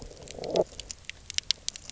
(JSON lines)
{"label": "biophony", "recorder": "SoundTrap 300"}